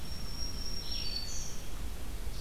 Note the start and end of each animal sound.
0.0s-1.9s: Black-throated Green Warbler (Setophaga virens)
0.0s-2.4s: Red-eyed Vireo (Vireo olivaceus)

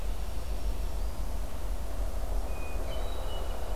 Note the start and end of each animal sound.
0.1s-1.4s: Black-throated Green Warbler (Setophaga virens)
2.4s-3.8s: Hermit Thrush (Catharus guttatus)

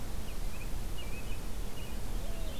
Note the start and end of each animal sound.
0.1s-1.9s: American Robin (Turdus migratorius)
1.9s-2.6s: Purple Finch (Haemorhous purpureus)
2.1s-2.6s: Mourning Dove (Zenaida macroura)

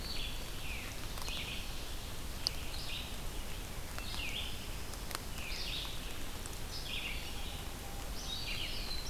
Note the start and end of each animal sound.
0.0s-9.1s: Red-eyed Vireo (Vireo olivaceus)
8.3s-9.1s: Black-throated Blue Warbler (Setophaga caerulescens)

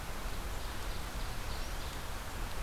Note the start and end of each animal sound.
0.0s-2.2s: Ovenbird (Seiurus aurocapilla)

